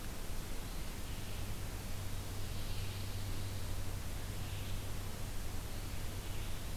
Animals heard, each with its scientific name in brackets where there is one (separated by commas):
Pine Warbler (Setophaga pinus), Red-eyed Vireo (Vireo olivaceus)